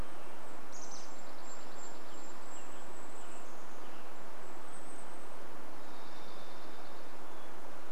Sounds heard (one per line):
Chestnut-backed Chickadee call
Dark-eyed Junco song
Varied Thrush song
Golden-crowned Kinglet song
Western Tanager song